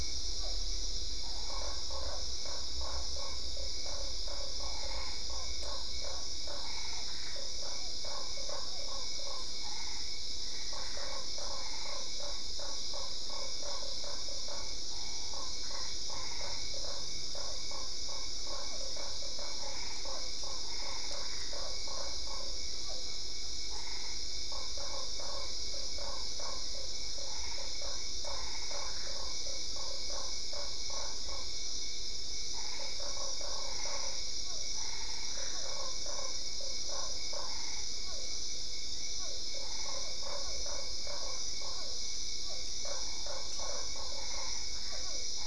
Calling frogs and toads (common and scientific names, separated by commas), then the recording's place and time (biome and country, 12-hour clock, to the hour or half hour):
Usina tree frog (Boana lundii), Physalaemus cuvieri, Boana albopunctata
Cerrado, Brazil, 10pm